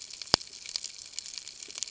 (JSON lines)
{"label": "ambient", "recorder": "HydroMoth"}